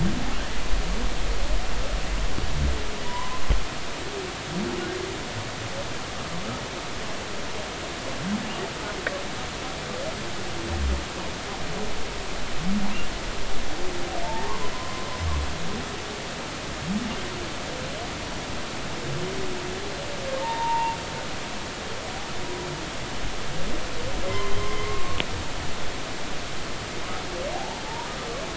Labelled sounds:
3.0	3.4	humpback whale, 0.90 to 1.1 kHz
14.2	15.1	humpback whale, 0.83 to 1.2 kHz
20.4	21.0	humpback whale, 0.86 to 0.99 kHz
24.2	25.2	humpback whale, 0.96 to 2.2 kHz
27.5	27.8	humpback whale, 0.80 to 0.96 kHz

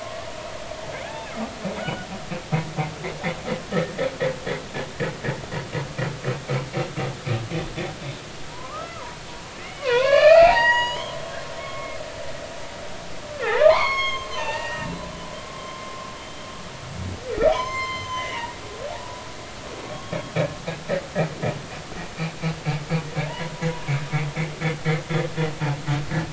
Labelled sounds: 1.0	2.1	humpback whale, 0.80 to 3.0 kHz
3.7	3.9	humpback whale, 1.7 to 2.0 kHz
8.5	9.1	humpback whale, 0.90 to 1.4 kHz
9.6	11.2	humpback whale, 0.80 to 6.9 kHz
11.6	12.0	humpback whale, 1.1 to 2.2 kHz
13.4	14.9	humpback whale, 0.80 to 6.6 kHz
15.5	15.9	humpback whale, 1.0 to 3.2 kHz
17.5	18.7	humpback whale, 0.93 to 7.4 kHz
19.9	20.2	humpback whale, 1.0 to 3.3 kHz
23.3	23.5	humpback whale, 0.86 to 1.1 kHz

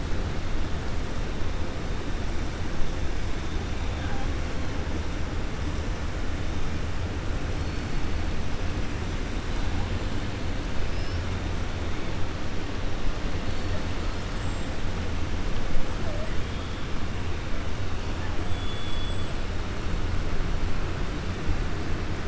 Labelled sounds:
14.2	14.7	killer whale, 6.8 to 8.0 kHz

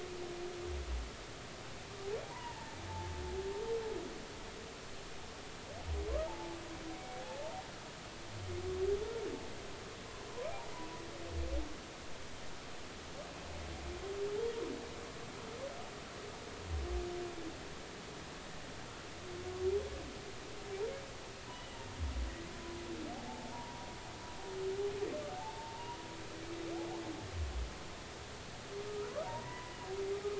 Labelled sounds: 2.3	2.8	humpback whale, 0.83 to 2.0 kHz
6.3	7.2	humpback whale, 0.80 to 2.3 kHz
21.5	21.8	humpback whale, 2.8 to 3.0 kHz
23.3	23.9	humpback whale, 0.80 to 1.1 kHz
25.3	26.0	humpback whale, 0.80 to 1.0 kHz
28.9	29.7	humpback whale, 0.86 to 1.5 kHz

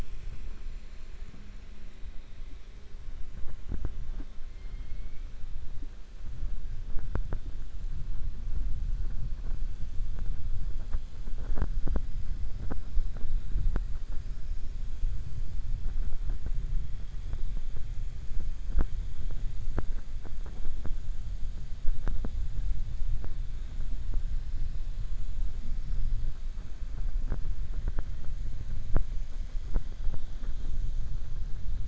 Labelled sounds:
4.5	5.2	killer whale, 2.1 to 3.1 kHz

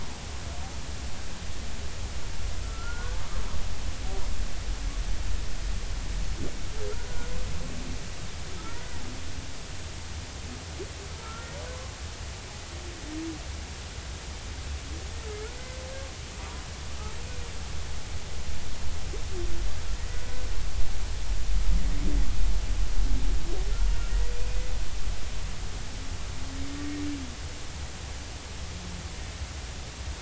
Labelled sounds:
2.6	3.2	humpback whale, 1.3 to 1.6 kHz
8.6	8.8	humpback whale, 1.2 to 1.5 kHz
11.2	11.5	humpback whale, 1.2 to 1.4 kHz

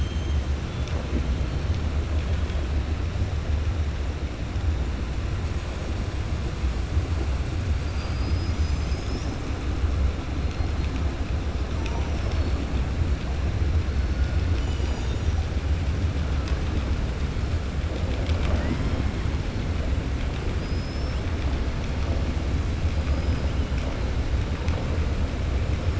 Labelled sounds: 20.5	21.2	killer whale, 4.9 to 5.5 kHz

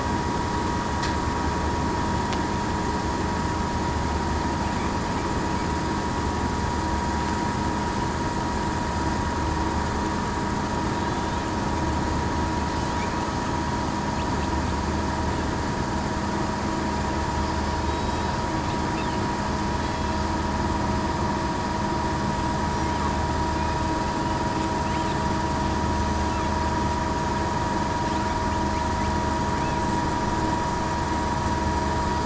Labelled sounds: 17.9	18.3	killer whale, southern resident, 3.8 to 3.9 kHz

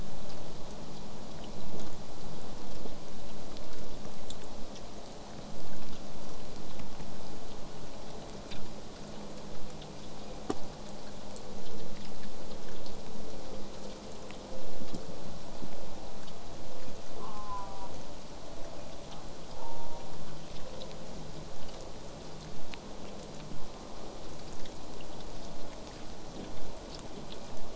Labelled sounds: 17.2	17.9	killer whale, southern resident, J pod, call S04, 0.50 to 1.6 kHz
19.5	20.1	killer whale, southern resident, J pod, call S04, 0.35 to 1.1 kHz

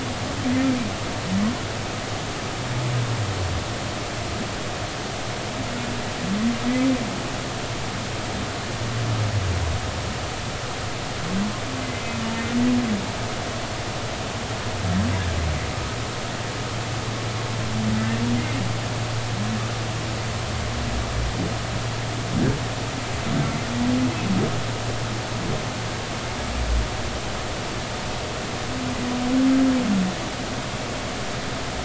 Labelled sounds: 11.8	12.2	humpback whale, 2.0 to 2.1 kHz
18.4	18.6	humpback whale, 2.0 to 2.2 kHz
23.4	23.7	humpback whale, 2.0 to 2.3 kHz

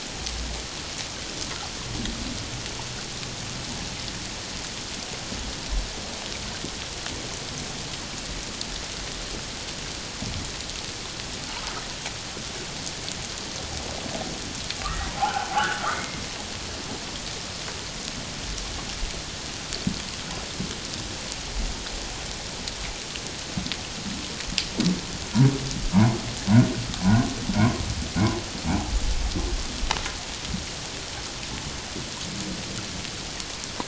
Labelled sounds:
14.8	15.5	humpback whale, 0.78 to 1.6 kHz
15.9	16.2	humpback whale, 2.0 to 2.2 kHz

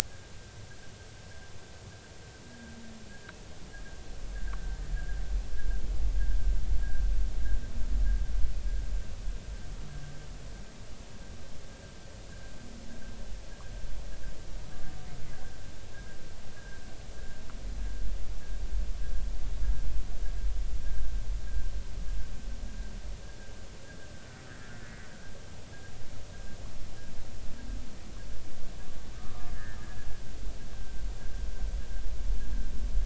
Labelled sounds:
3.1	3.3	humpback whale, 1.3 to 1.7 kHz
16.5	16.8	humpback whale, 1.5 to 1.7 kHz
24.5	25.1	humpback whale, 1.3 to 2.0 kHz
29.1	29.8	humpback whale, 1.0 to 1.9 kHz

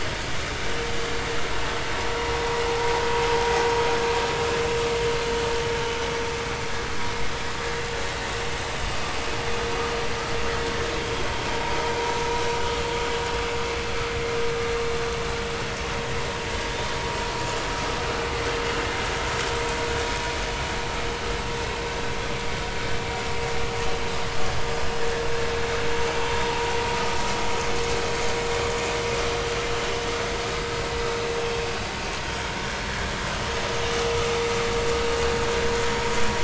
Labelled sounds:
11.0	11.2	vessel noise, 3.2 to 3.3 kHz

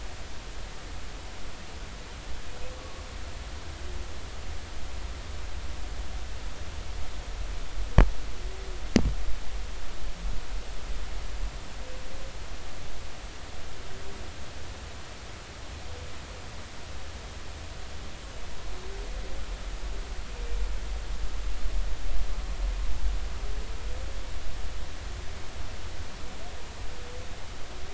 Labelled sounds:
2.8	3.0	humpback whale, 1.1 to 1.2 kHz

